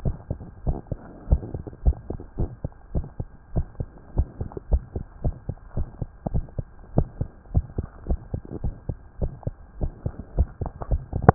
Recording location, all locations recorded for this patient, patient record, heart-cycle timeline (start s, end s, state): tricuspid valve (TV)
aortic valve (AV)+pulmonary valve (PV)+tricuspid valve (TV)+mitral valve (MV)
#Age: Child
#Sex: Female
#Height: 121.0 cm
#Weight: 21.9 kg
#Pregnancy status: False
#Murmur: Present
#Murmur locations: tricuspid valve (TV)
#Most audible location: tricuspid valve (TV)
#Systolic murmur timing: Early-systolic
#Systolic murmur shape: Plateau
#Systolic murmur grading: I/VI
#Systolic murmur pitch: Low
#Systolic murmur quality: Harsh
#Diastolic murmur timing: nan
#Diastolic murmur shape: nan
#Diastolic murmur grading: nan
#Diastolic murmur pitch: nan
#Diastolic murmur quality: nan
#Outcome: Abnormal
#Campaign: 2015 screening campaign
0.00	0.03	unannotated
0.03	0.14	S1
0.14	0.27	systole
0.27	0.38	S2
0.38	0.64	diastole
0.64	0.78	S1
0.78	0.90	systole
0.90	1.00	S2
1.00	1.26	diastole
1.26	1.42	S1
1.42	1.54	systole
1.54	1.64	S2
1.64	1.82	diastole
1.82	1.96	S1
1.96	2.08	systole
2.08	2.18	S2
2.18	2.38	diastole
2.38	2.52	S1
2.52	2.62	systole
2.62	2.72	S2
2.72	2.92	diastole
2.92	3.06	S1
3.06	3.18	systole
3.18	3.28	S2
3.28	3.54	diastole
3.54	3.68	S1
3.68	3.78	systole
3.78	3.88	S2
3.88	4.14	diastole
4.14	4.28	S1
4.28	4.39	systole
4.39	4.50	S2
4.50	4.70	diastole
4.70	4.84	S1
4.84	4.93	systole
4.93	5.02	S2
5.02	5.24	diastole
5.24	5.36	S1
5.36	5.46	systole
5.46	5.56	S2
5.56	5.76	diastole
5.76	5.88	S1
5.88	5.99	systole
5.99	6.12	S2
6.12	6.32	diastole
6.32	6.46	S1
6.46	6.56	systole
6.56	6.66	S2
6.66	6.92	diastole
6.92	7.08	S1
7.08	7.18	systole
7.18	7.28	S2
7.28	7.50	diastole
7.50	7.66	S1
7.66	7.76	systole
7.76	7.88	S2
7.88	8.08	diastole
8.08	8.20	S1
8.20	8.31	systole
8.31	8.42	S2
8.42	8.62	diastole
8.62	8.76	S1
8.76	8.87	systole
8.87	8.98	S2
8.98	9.19	diastole
9.19	9.34	S1
9.34	9.44	systole
9.44	9.54	S2
9.54	9.80	diastole
9.80	9.94	S1
9.94	10.04	systole
10.04	10.14	S2
10.14	10.34	diastole
10.34	10.48	S1
10.48	10.60	systole
10.60	10.70	S2
10.70	10.89	diastole
10.89	11.02	S1
11.02	11.34	unannotated